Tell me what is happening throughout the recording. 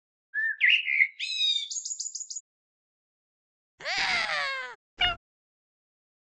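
At the start, the sound of a bird is heard. Then about 4 seconds in, someone screams. After that, about 5 seconds in, a cat meows.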